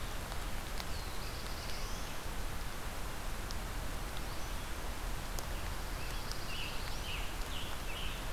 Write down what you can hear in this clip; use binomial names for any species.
Setophaga caerulescens, Setophaga pinus, Piranga olivacea